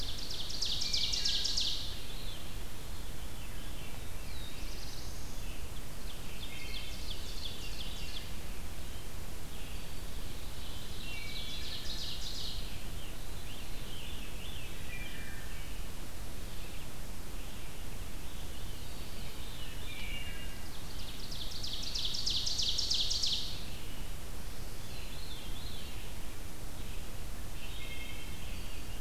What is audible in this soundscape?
Ovenbird, Red-eyed Vireo, Veery, Black-throated Blue Warbler, Wood Thrush, Scarlet Tanager